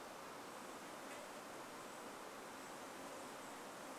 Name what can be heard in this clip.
Golden-crowned Kinglet call, insect buzz